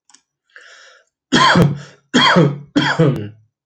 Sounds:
Cough